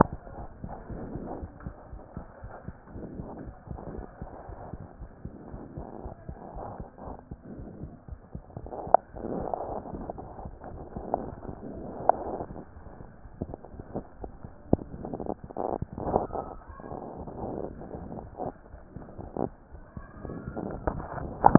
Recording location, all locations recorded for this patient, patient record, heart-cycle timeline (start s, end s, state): aortic valve (AV)
aortic valve (AV)+pulmonary valve (PV)+tricuspid valve (TV)
#Age: Child
#Sex: Female
#Height: 114.0 cm
#Weight: 26.2 kg
#Pregnancy status: False
#Murmur: Absent
#Murmur locations: nan
#Most audible location: nan
#Systolic murmur timing: nan
#Systolic murmur shape: nan
#Systolic murmur grading: nan
#Systolic murmur pitch: nan
#Systolic murmur quality: nan
#Diastolic murmur timing: nan
#Diastolic murmur shape: nan
#Diastolic murmur grading: nan
#Diastolic murmur pitch: nan
#Diastolic murmur quality: nan
#Outcome: Abnormal
#Campaign: 2015 screening campaign
0.00	0.36	unannotated
0.36	0.48	S1
0.48	0.63	systole
0.63	0.70	S2
0.70	0.89	diastole
0.89	1.01	S1
1.01	1.13	systole
1.13	1.22	S2
1.22	1.41	diastole
1.41	1.51	S1
1.51	1.66	systole
1.66	1.72	S2
1.72	1.92	diastole
1.92	2.00	S1
2.00	2.16	systole
2.16	2.26	S2
2.26	2.42	diastole
2.42	2.52	S1
2.52	2.68	systole
2.68	2.76	S2
2.76	2.94	diastole
2.94	3.08	S1
3.08	3.14	systole
3.14	3.26	S2
3.26	3.40	diastole
3.40	3.54	S1
3.54	3.70	systole
3.70	3.80	S2
3.80	3.92	diastole
3.92	4.06	S1
4.06	4.22	systole
4.22	4.32	S2
4.32	4.48	diastole
4.48	4.58	S1
4.58	4.72	systole
4.72	4.82	S2
4.82	5.00	diastole
5.00	5.10	S1
5.10	5.24	systole
5.24	5.34	S2
5.34	5.52	diastole
5.52	5.62	S1
5.62	5.76	systole
5.76	5.88	S2
5.88	6.04	diastole
6.04	6.16	S1
6.16	6.28	systole
6.28	6.38	S2
6.38	6.54	diastole
6.54	6.64	S1
6.64	6.78	systole
6.78	6.86	S2
6.86	7.04	diastole
7.04	7.16	S1
7.16	7.30	systole
7.30	7.38	S2
7.38	7.56	diastole
7.56	7.70	S1
7.70	7.82	systole
7.82	7.92	S2
7.92	8.08	diastole
8.08	8.22	S1
8.22	8.34	systole
8.34	8.44	S2
8.44	8.62	diastole
8.62	21.58	unannotated